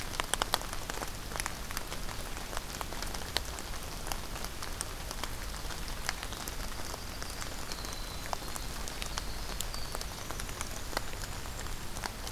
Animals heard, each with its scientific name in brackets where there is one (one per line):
Winter Wren (Troglodytes hiemalis)
Golden-crowned Kinglet (Regulus satrapa)